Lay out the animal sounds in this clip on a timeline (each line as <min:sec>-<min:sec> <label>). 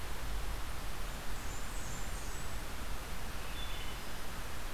0:01.0-0:02.7 Blackburnian Warbler (Setophaga fusca)
0:03.2-0:04.5 Wood Thrush (Hylocichla mustelina)